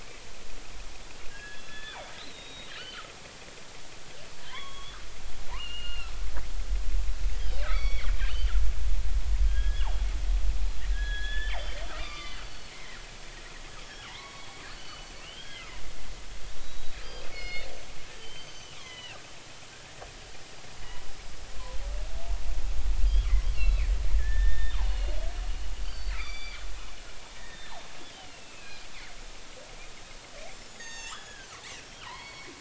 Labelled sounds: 1.3	3.0	killer whale, northern resident, G clan, 1.5 to 4.6 kHz
4.4	5.0	killer whale, northern resident, G clan, 0.93 to 3.5 kHz
5.6	6.1	killer whale, northern resident, G clan, 1.3 to 4.3 kHz
7.4	8.5	killer whale, northern resident, G clan, 1.8 to 5.8 kHz
9.5	9.9	killer whale, northern resident, G clan, 0.80 to 3.4 kHz
10.9	13.0	killer whale, northern resident, G clan, 1.0 to 4.9 kHz
13.8	15.6	killer whale, northern resident, G clan, 0.86 to 5.6 kHz
16.6	17.7	killer whale, northern resident, G clan, 2.1 to 5.2 kHz
18.1	19.2	killer whale, northern resident, G clan, 1.8 to 6.2 kHz
23.5	25.2	killer whale, northern resident, G clan, 1.6 to 4.5 kHz
25.8	26.6	killer whale, northern resident, G clan, 1.7 to 4.9 kHz
27.4	28.9	killer whale, northern resident, G clan, 2.3 to 3.8 kHz
30.7	31.5	killer whale, northern resident, G clan, 0.80 to 7.5 kHz
32.0	32.5	killer whale, northern resident, G clan, 0.83 to 4.5 kHz

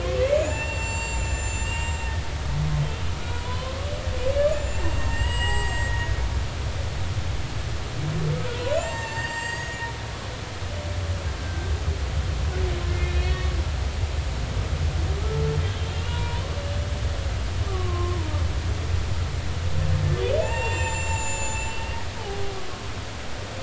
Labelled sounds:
0.0	2.1	humpback whale, 0.83 to 7.6 kHz
3.2	3.8	humpback whale, 0.93 to 1.5 kHz
4.5	6.1	humpback whale, 0.80 to 7.8 kHz
8.8	9.8	humpback whale, 0.83 to 7.6 kHz
11.4	11.7	humpback whale, 1.5 to 1.6 kHz
12.9	13.5	humpback whale, 1.7 to 4.1 kHz
15.9	16.4	humpback whale, 0.90 to 2.9 kHz
17.7	18.2	humpback whale, 0.99 to 1.2 kHz
20.4	22.6	humpback whale, 0.80 to 7.5 kHz

